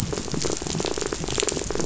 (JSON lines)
{"label": "biophony, rattle", "recorder": "SoundTrap 500"}